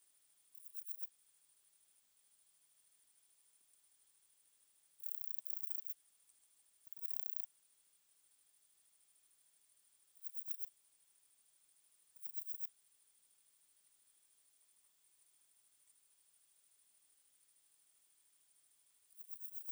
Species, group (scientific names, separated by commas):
Parnassiana chelmos, Orthoptera